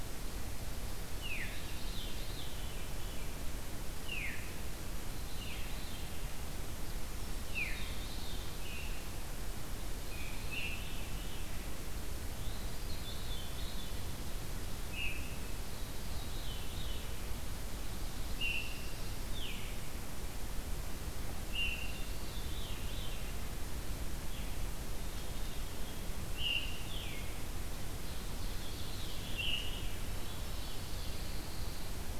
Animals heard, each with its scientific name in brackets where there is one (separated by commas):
Pine Warbler (Setophaga pinus), Veery (Catharus fuscescens), Ovenbird (Seiurus aurocapilla)